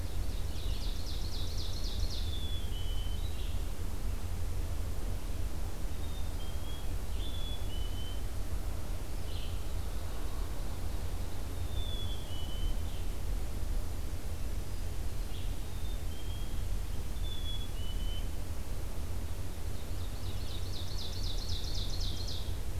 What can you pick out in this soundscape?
Ovenbird, Red-eyed Vireo, Black-capped Chickadee